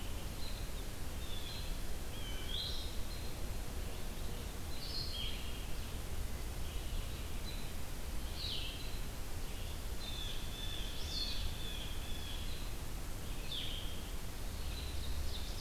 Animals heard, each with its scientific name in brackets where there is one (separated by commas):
Blue-headed Vireo (Vireo solitarius), Ovenbird (Seiurus aurocapilla), Blue Jay (Cyanocitta cristata)